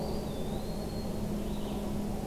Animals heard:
Eastern Wood-Pewee (Contopus virens)
Red-eyed Vireo (Vireo olivaceus)
Black-throated Green Warbler (Setophaga virens)

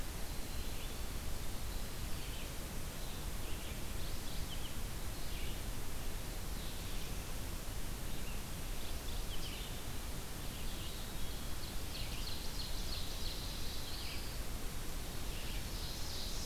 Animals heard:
Mourning Warbler (Geothlypis philadelphia)
Ovenbird (Seiurus aurocapilla)
Winter Wren (Troglodytes hiemalis)
Black-throated Blue Warbler (Setophaga caerulescens)
Red-eyed Vireo (Vireo olivaceus)

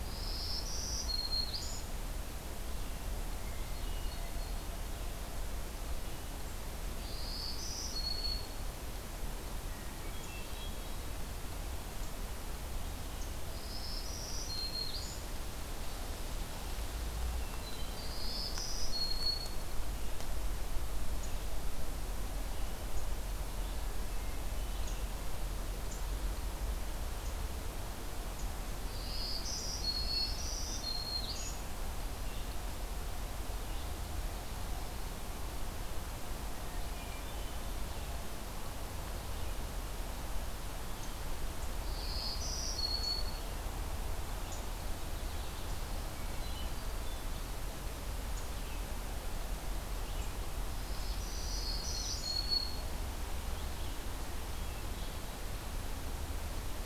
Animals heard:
Hermit Thrush (Catharus guttatus)
Black-throated Green Warbler (Setophaga virens)
Red-eyed Vireo (Vireo olivaceus)

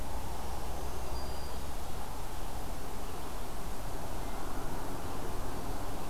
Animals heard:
Black-throated Green Warbler (Setophaga virens)

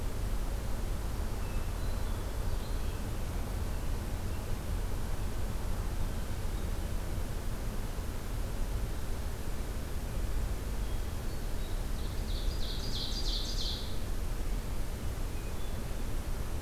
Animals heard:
Hermit Thrush (Catharus guttatus)
Ovenbird (Seiurus aurocapilla)

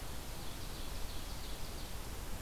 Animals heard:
Ovenbird (Seiurus aurocapilla)

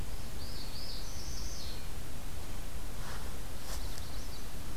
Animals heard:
Magnolia Warbler (Setophaga magnolia)
Northern Parula (Setophaga americana)

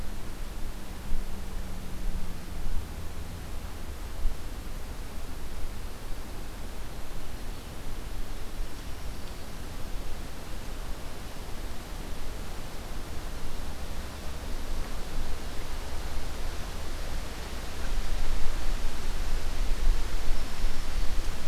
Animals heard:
Black-capped Chickadee (Poecile atricapillus)

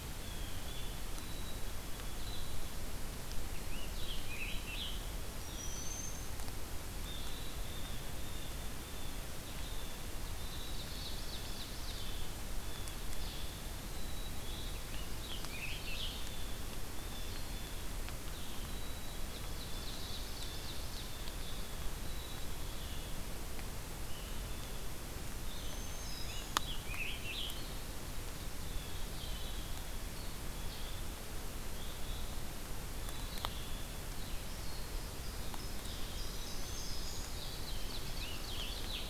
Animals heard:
Scarlet Tanager (Piranga olivacea)
Blue-headed Vireo (Vireo solitarius)
Ovenbird (Seiurus aurocapilla)
Black-throated Green Warbler (Setophaga virens)
Black-capped Chickadee (Poecile atricapillus)
Blue Jay (Cyanocitta cristata)

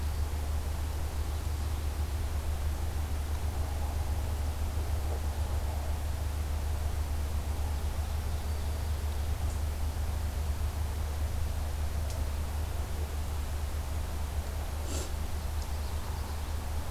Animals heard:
Common Yellowthroat (Geothlypis trichas)
Ovenbird (Seiurus aurocapilla)

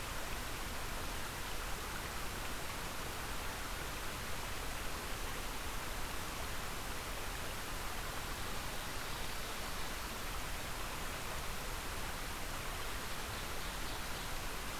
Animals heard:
Ovenbird (Seiurus aurocapilla)

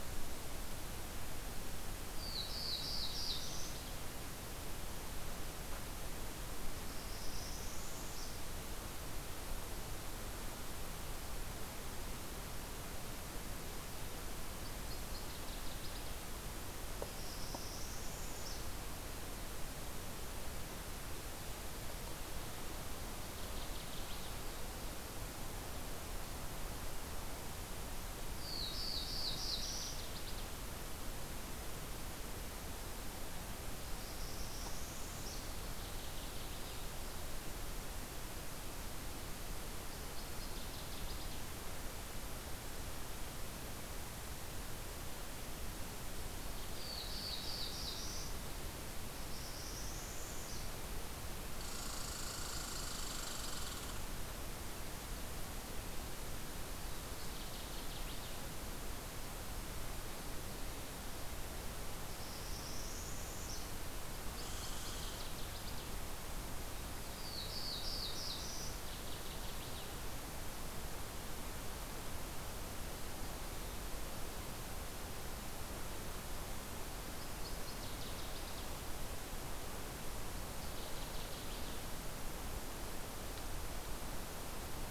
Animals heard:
Northern Parula (Setophaga americana)
Black-throated Blue Warbler (Setophaga caerulescens)
Northern Waterthrush (Parkesia noveboracensis)
Red Squirrel (Tamiasciurus hudsonicus)

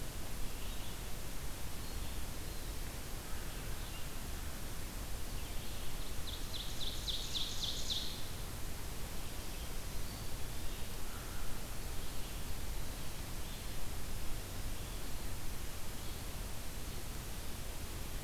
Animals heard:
Red-eyed Vireo (Vireo olivaceus)
Ovenbird (Seiurus aurocapilla)

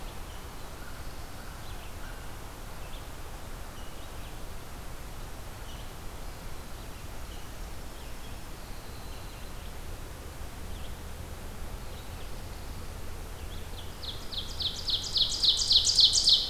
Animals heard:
Ovenbird (Seiurus aurocapilla)
Red-eyed Vireo (Vireo olivaceus)
American Crow (Corvus brachyrhynchos)
Winter Wren (Troglodytes hiemalis)

